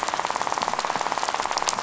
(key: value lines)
label: biophony, rattle
recorder: SoundTrap 500